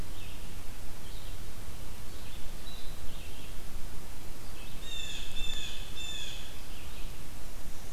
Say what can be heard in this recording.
Red-eyed Vireo, Blue Jay